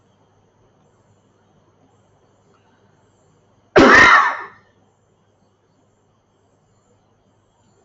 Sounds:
Cough